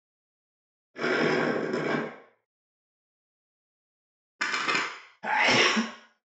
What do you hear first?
gurgling